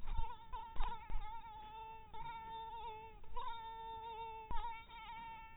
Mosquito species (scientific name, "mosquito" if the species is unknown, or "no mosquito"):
mosquito